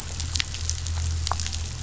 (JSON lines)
{"label": "anthrophony, boat engine", "recorder": "SoundTrap 500"}